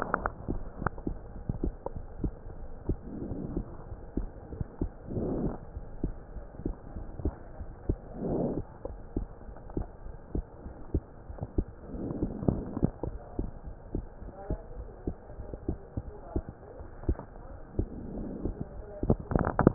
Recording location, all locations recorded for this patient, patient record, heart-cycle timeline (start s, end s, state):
pulmonary valve (PV)
aortic valve (AV)+pulmonary valve (PV)+tricuspid valve (TV)+mitral valve (MV)
#Age: Child
#Sex: Male
#Height: 122.0 cm
#Weight: 23.8 kg
#Pregnancy status: False
#Murmur: Absent
#Murmur locations: nan
#Most audible location: nan
#Systolic murmur timing: nan
#Systolic murmur shape: nan
#Systolic murmur grading: nan
#Systolic murmur pitch: nan
#Systolic murmur quality: nan
#Diastolic murmur timing: nan
#Diastolic murmur shape: nan
#Diastolic murmur grading: nan
#Diastolic murmur pitch: nan
#Diastolic murmur quality: nan
#Outcome: Normal
#Campaign: 2015 screening campaign
0.00	5.74	unannotated
5.74	5.86	S1
5.86	6.02	systole
6.02	6.16	S2
6.16	6.34	diastole
6.34	6.44	S1
6.44	6.64	systole
6.64	6.74	S2
6.74	6.94	diastole
6.94	7.06	S1
7.06	7.20	systole
7.20	7.34	S2
7.34	7.58	diastole
7.58	7.68	S1
7.68	7.86	systole
7.86	8.00	S2
8.00	8.24	diastole
8.24	8.42	S1
8.42	8.56	systole
8.56	8.66	S2
8.66	8.86	diastole
8.86	9.00	S1
9.00	9.14	systole
9.14	9.28	S2
9.28	9.48	diastole
9.48	9.56	S1
9.56	9.72	systole
9.72	9.86	S2
9.86	10.06	diastole
10.06	10.16	S1
10.16	10.30	systole
10.30	10.44	S2
10.44	10.64	diastole
10.64	10.72	S1
10.72	10.90	systole
10.90	11.04	S2
11.04	11.30	diastole
11.30	11.40	S1
11.40	11.55	systole
11.55	11.68	S2
11.68	11.96	diastole
11.96	19.74	unannotated